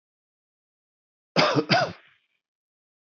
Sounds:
Cough